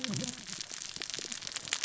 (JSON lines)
{"label": "biophony, cascading saw", "recorder": "SoundTrap 600 or HydroMoth"}